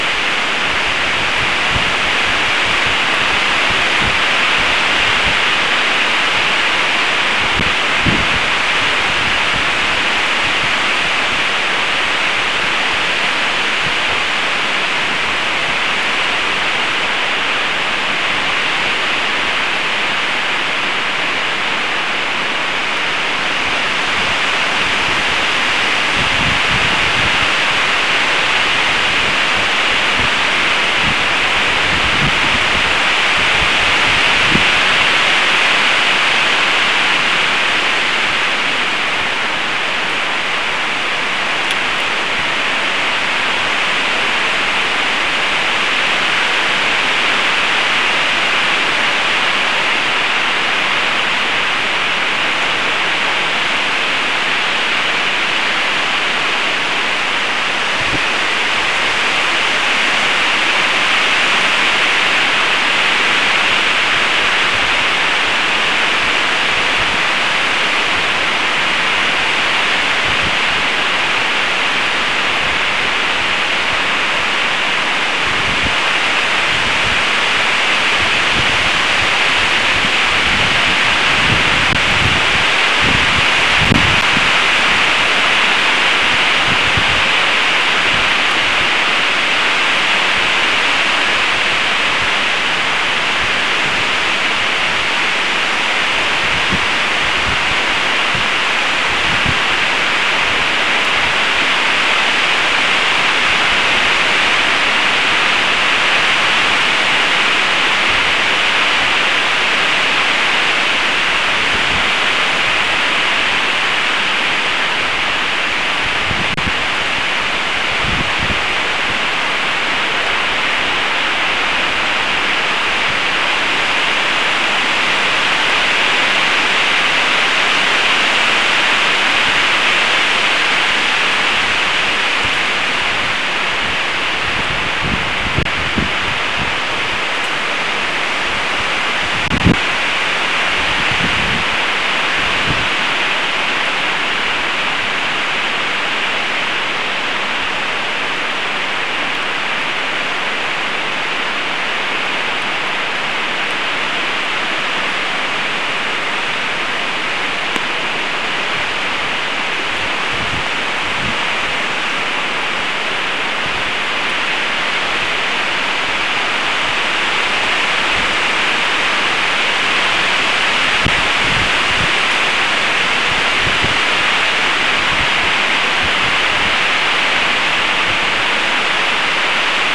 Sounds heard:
forest ambience